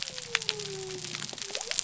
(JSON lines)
{"label": "biophony", "recorder": "SoundTrap 300"}